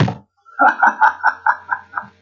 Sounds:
Laughter